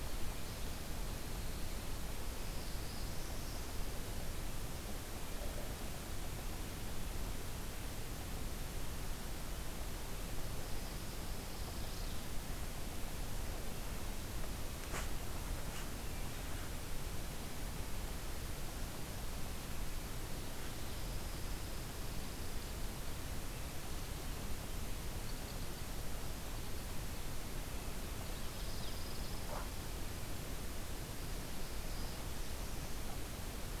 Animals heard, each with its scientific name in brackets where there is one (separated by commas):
Black-throated Blue Warbler (Setophaga caerulescens), Pine Warbler (Setophaga pinus)